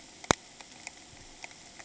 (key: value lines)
label: ambient
recorder: HydroMoth